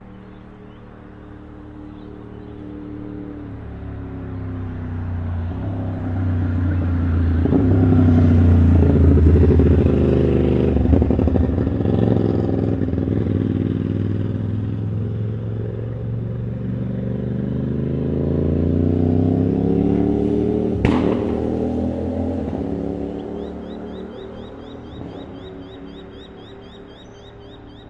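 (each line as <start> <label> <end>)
0.0 The sound of a motorbike accelerating from a distance. 6.1
0.0 A motorbike approaches from a distance, its engine intensifies with acceleration and is punctuated by distinct exhaust backfires, while faint bird calls are heard in the background. 27.9
6.2 An engine accelerating as a motorbike gains speed. 14.4
20.8 A motorbike accelerates, its exhaust roaring. 21.5
23.5 Birds chirping in the ambient environment. 27.9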